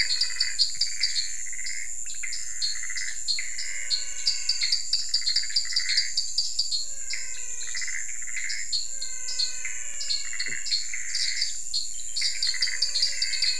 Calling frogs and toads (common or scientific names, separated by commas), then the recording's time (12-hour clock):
dwarf tree frog, menwig frog, Pithecopus azureus
7:30pm